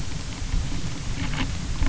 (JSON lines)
{"label": "anthrophony, boat engine", "recorder": "SoundTrap 300"}